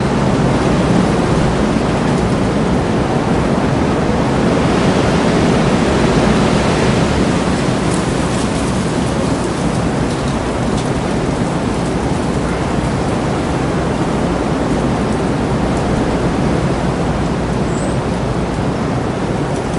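0.0s Strong wind creates a loud, continuous whooshing sound. 19.8s
0.0s Rustling of trees and leaves in the background. 19.8s

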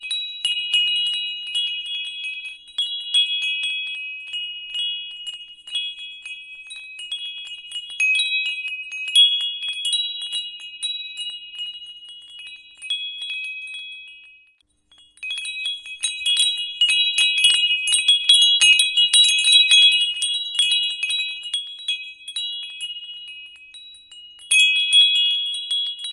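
0.0s Chimes jingling. 14.3s
15.2s Chimes jingling. 26.1s

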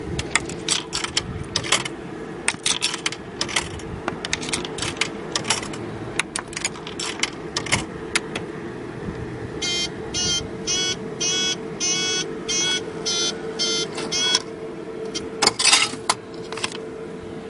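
0.0s Coins dropping inside a machine with a metallic sound. 8.4s
9.7s A machine is beeping. 14.4s
15.4s Metallic sound of coins dropping. 16.7s

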